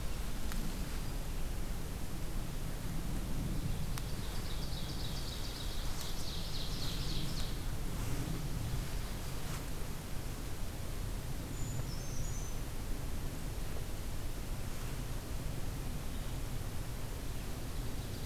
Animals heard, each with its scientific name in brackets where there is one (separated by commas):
Ovenbird (Seiurus aurocapilla), Brown Creeper (Certhia americana)